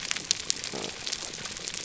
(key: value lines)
label: biophony
recorder: SoundTrap 300